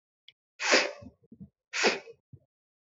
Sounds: Sniff